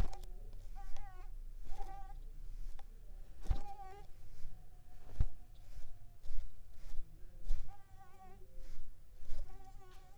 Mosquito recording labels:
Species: Mansonia uniformis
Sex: female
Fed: unfed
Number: one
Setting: cup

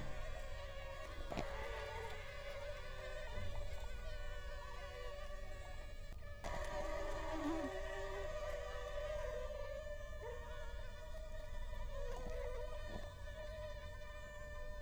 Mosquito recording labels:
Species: Culex quinquefasciatus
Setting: cup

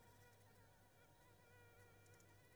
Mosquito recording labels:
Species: Anopheles squamosus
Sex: female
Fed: unfed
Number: one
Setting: cup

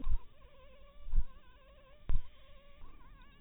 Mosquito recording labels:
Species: mosquito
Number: one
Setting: cup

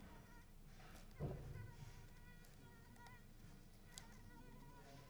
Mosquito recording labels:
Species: Culex pipiens complex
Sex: female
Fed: unfed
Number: one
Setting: cup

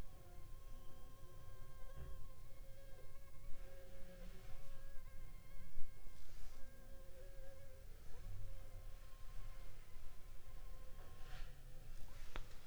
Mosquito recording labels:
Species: Anopheles funestus s.s.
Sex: female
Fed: unfed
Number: one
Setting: cup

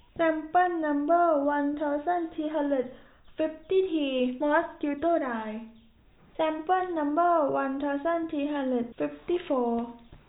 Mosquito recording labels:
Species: no mosquito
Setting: cup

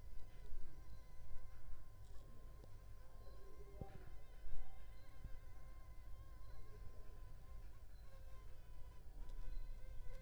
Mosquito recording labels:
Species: Culex pipiens complex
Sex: female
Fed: unfed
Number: one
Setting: cup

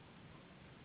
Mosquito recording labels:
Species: Anopheles gambiae s.s.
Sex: female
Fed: unfed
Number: one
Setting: insect culture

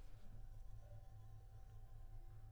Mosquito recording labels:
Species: Anopheles arabiensis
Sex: female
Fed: unfed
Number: one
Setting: cup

